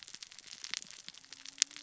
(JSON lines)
{"label": "biophony, cascading saw", "recorder": "SoundTrap 600 or HydroMoth"}